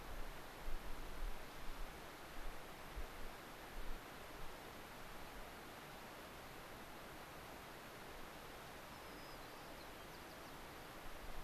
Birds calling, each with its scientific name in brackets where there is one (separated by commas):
White-crowned Sparrow (Zonotrichia leucophrys)